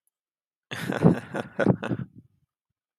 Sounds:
Laughter